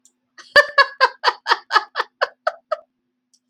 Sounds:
Laughter